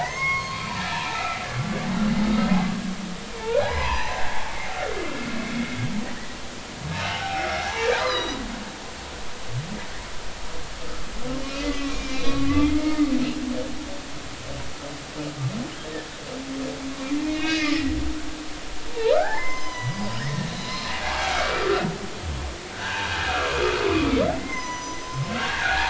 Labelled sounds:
0.0	1.1	humpback whale, 0.80 to 6.6 kHz
1.5	1.8	humpback whale, 1.1 to 1.2 kHz
3.4	4.2	humpback whale, 0.80 to 6.1 kHz
4.7	5.4	humpback whale, 1.3 to 1.5 kHz
6.0	6.4	humpback whale, 1.7 to 2.0 kHz
7.0	8.4	humpback whale, 0.80 to 5.2 kHz
11.4	13.1	humpback whale, 1.0 to 3.9 kHz
17.2	17.9	humpback whale, 1.7 to 3.9 kHz
19.1	21.9	humpback whale, 0.80 to 6.2 kHz
22.7	23.6	humpback whale, 0.83 to 1.8 kHz
23.9	25.8	humpback whale, 0.93 to 7.1 kHz

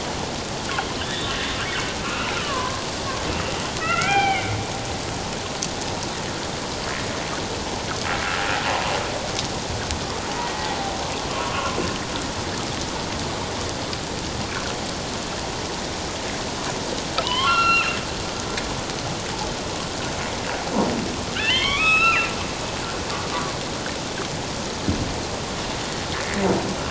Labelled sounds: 1.0	1.3	humpback whale, 3.4 to 3.9 kHz
2.0	2.8	humpback whale, 0.94 to 2.8 kHz
3.8	4.6	humpback whale, 0.78 to 3.2 kHz
10.4	10.8	humpback whale, 1.9 to 2.0 kHz
11.4	11.8	humpback whale, 1.0 to 1.2 kHz
17.2	18.0	humpback whale, 0.91 to 4.2 kHz
21.3	22.3	humpback whale, 0.97 to 5.3 kHz

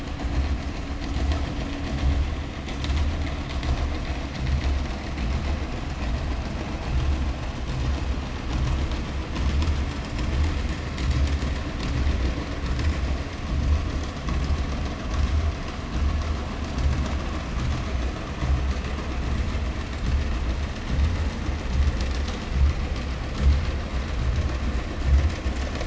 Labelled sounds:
8.4	13.8	vessel noise, 0 to 8.0 kHz

